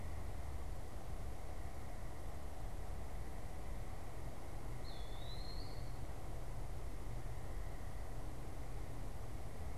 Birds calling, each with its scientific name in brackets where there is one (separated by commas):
Eastern Wood-Pewee (Contopus virens)